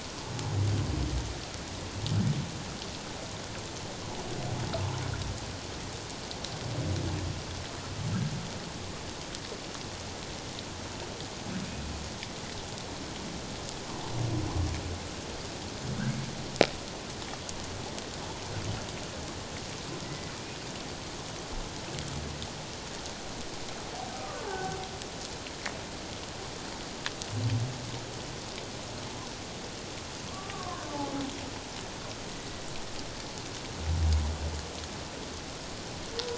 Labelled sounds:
20.0	20.3	humpback whale, 1.9 to 2.0 kHz
24.1	24.8	humpback whale, 1.0 to 1.6 kHz
30.3	30.8	humpback whale, 0.94 to 1.2 kHz

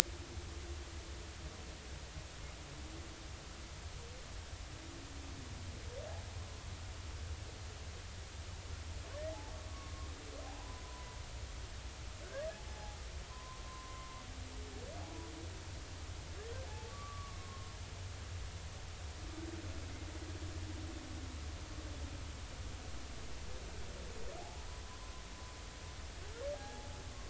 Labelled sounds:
9.7	10.8	humpback whale, 0.80 to 1.2 kHz
12.6	14.1	humpback whale, 0.80 to 1.2 kHz
16.7	17.7	humpback whale, 0.80 to 1.2 kHz
24.9	25.1	humpback whale, 0.96 to 1.1 kHz
26.5	26.9	humpback whale, 0.80 to 0.90 kHz

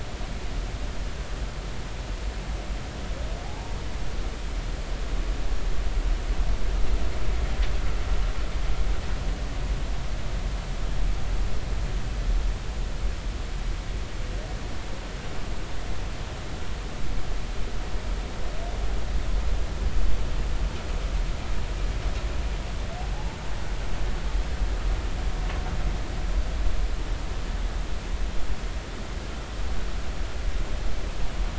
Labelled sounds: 3.4	3.8	humpback whale, 0.80 to 0.96 kHz

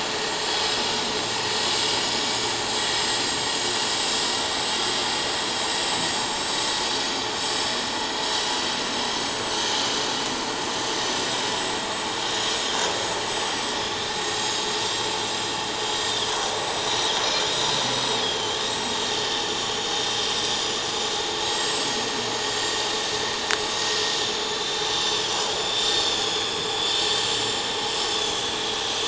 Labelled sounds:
2.7	3.3	vessel noise, 7.5 to 7.7 kHz
4.5	4.8	vessel noise, 7.7 to 7.9 kHz
6.0	6.7	vessel noise, 6.5 to 7.9 kHz
7.4	10.0	vessel noise, 5.8 to 8.0 kHz
11.0	11.2	vessel noise, 5.9 to 6.1 kHz
11.5	13.8	vessel noise, 3.4 to 7.9 kHz
14.1	15.0	vessel noise, 6.5 to 7.5 kHz
16.6	19.2	vessel noise, 3.0 to 7.9 kHz
19.7	20.9	vessel noise, 7.0 to 8.0 kHz
21.2	22.8	vessel noise, 6.5 to 7.8 kHz
24.5	27.7	vessel noise, 3.2 to 8.0 kHz
28.0	28.5	vessel noise, 3.4 to 6.5 kHz
28.8	29.0	vessel noise, 5.8 to 6.1 kHz

